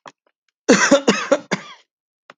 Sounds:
Cough